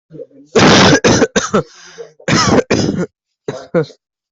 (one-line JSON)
{"expert_labels": [{"quality": "poor", "cough_type": "unknown", "dyspnea": false, "wheezing": false, "stridor": false, "choking": false, "congestion": false, "nothing": true, "diagnosis": "lower respiratory tract infection", "severity": "mild"}], "age": 18, "gender": "female", "respiratory_condition": true, "fever_muscle_pain": true, "status": "COVID-19"}